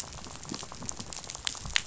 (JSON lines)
{"label": "biophony, rattle", "recorder": "SoundTrap 500"}